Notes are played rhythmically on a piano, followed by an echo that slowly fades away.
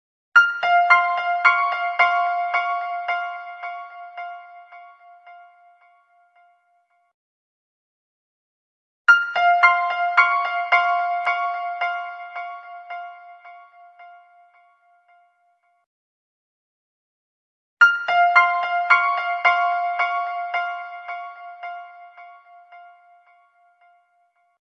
0:00.2 0:06.7, 0:09.1 0:15.4, 0:17.8 0:23.9

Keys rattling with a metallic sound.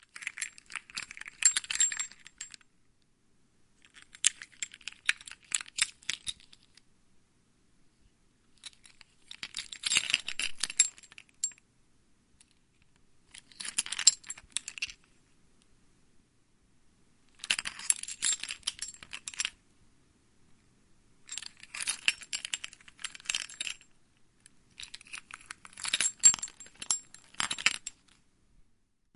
0:00.0 0:02.7, 0:03.8 0:06.9, 0:08.5 0:11.6, 0:13.2 0:15.0, 0:17.2 0:19.6, 0:21.2 0:23.9, 0:24.8 0:28.4

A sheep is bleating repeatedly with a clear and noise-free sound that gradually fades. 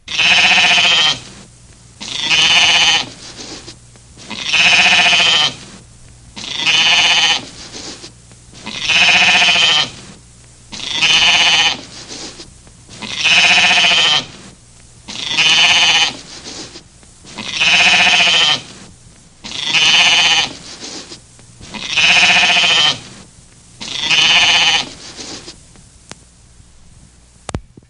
0:00.1 0:12.6, 0:13.2 0:14.8, 0:15.4 0:17.1, 0:19.8 0:21.3, 0:22.1 0:23.4, 0:24.3 0:25.9

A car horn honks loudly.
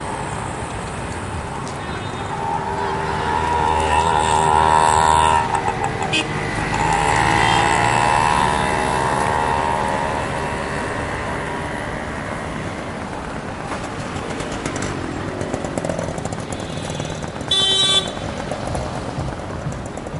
0:06.1 0:06.3, 0:17.5 0:18.0

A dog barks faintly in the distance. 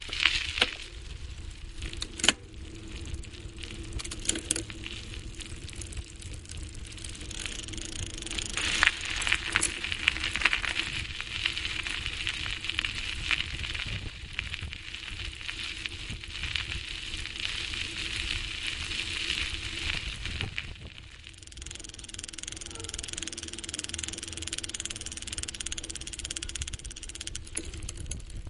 0:22.6 0:23.1

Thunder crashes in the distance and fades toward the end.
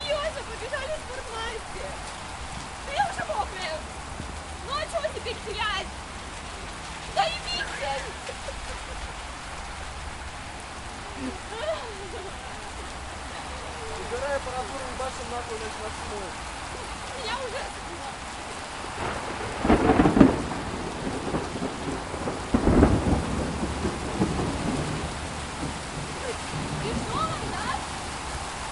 0:19.4 0:25.5

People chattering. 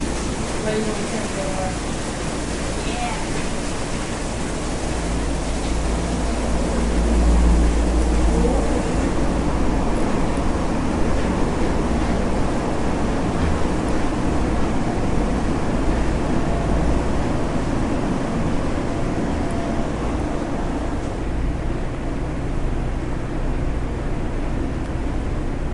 0:00.1 0:02.3

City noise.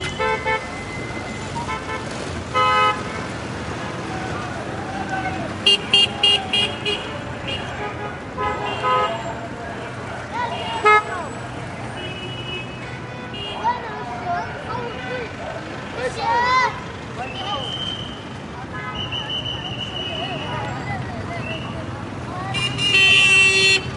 0:00.7 0:01.6

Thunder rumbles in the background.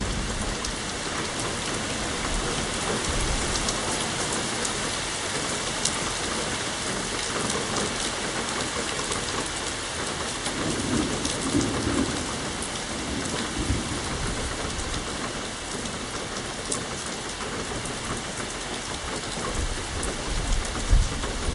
0:10.5 0:16.8

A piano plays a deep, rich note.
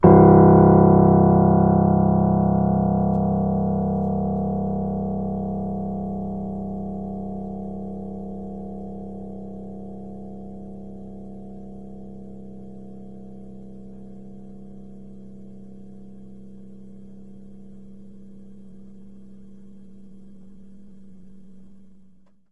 0:00.0 0:17.8

